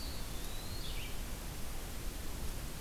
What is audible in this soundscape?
Eastern Wood-Pewee, Red-eyed Vireo